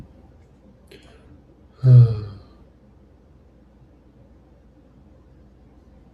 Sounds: Sigh